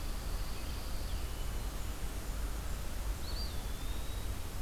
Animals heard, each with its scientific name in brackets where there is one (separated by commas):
Pine Warbler (Setophaga pinus), Hermit Thrush (Catharus guttatus), Blackburnian Warbler (Setophaga fusca), Eastern Wood-Pewee (Contopus virens)